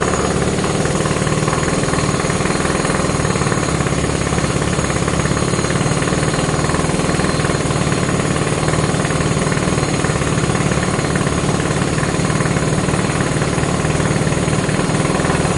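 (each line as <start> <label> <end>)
0.0 A jackhammer is repeatedly operating outdoors. 15.6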